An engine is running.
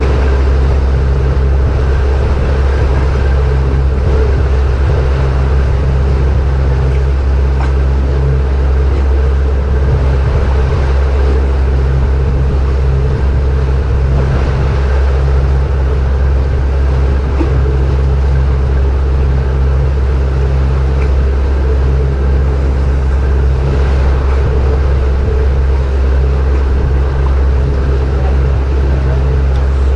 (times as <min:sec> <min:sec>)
0:00.9 0:19.0